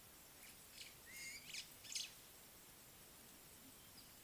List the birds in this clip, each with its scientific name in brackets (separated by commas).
White-browed Sparrow-Weaver (Plocepasser mahali)